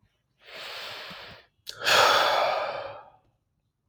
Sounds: Sigh